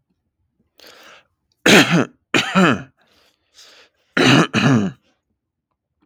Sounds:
Cough